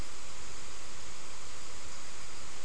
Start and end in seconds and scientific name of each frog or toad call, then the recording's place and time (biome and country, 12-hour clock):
none
Atlantic Forest, Brazil, 5:30pm